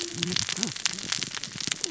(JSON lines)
{"label": "biophony, cascading saw", "recorder": "SoundTrap 600 or HydroMoth"}